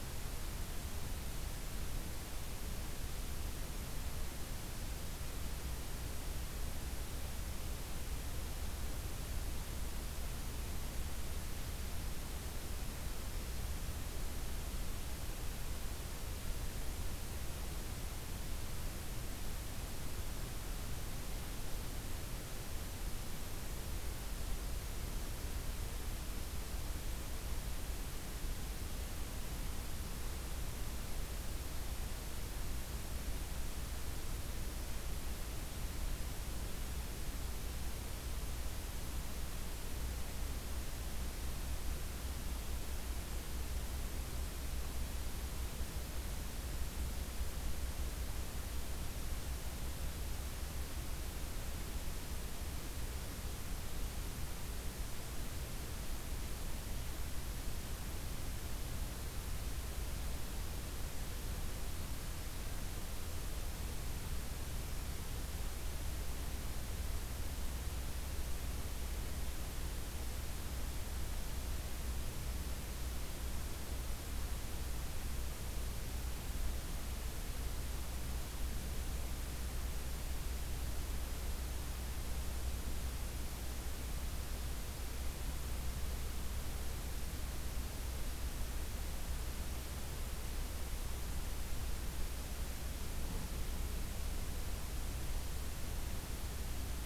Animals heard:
forest ambience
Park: Acadia National Park